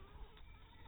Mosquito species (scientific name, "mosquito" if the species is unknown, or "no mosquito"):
Anopheles maculatus